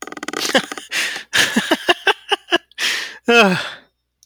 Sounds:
Laughter